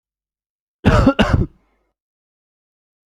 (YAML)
expert_labels:
- quality: good
  cough_type: dry
  dyspnea: false
  wheezing: false
  stridor: false
  choking: false
  congestion: false
  nothing: true
  diagnosis: healthy cough
  severity: pseudocough/healthy cough
age: 27
gender: male
respiratory_condition: false
fever_muscle_pain: false
status: symptomatic